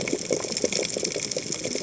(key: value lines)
label: biophony, cascading saw
recorder: HydroMoth

label: biophony
recorder: HydroMoth